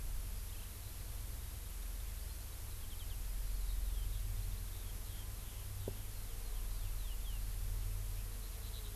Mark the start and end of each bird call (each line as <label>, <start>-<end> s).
Eurasian Skylark (Alauda arvensis), 0.0-9.0 s